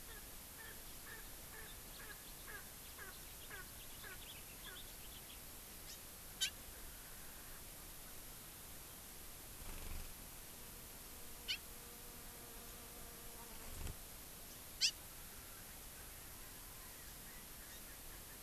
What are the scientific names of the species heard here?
Pternistis erckelii, Haemorhous mexicanus, Chlorodrepanis virens